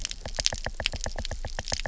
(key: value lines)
label: biophony, knock
recorder: SoundTrap 300